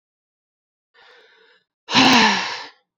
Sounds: Sigh